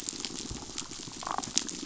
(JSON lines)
{"label": "biophony, damselfish", "recorder": "SoundTrap 500"}
{"label": "biophony", "recorder": "SoundTrap 500"}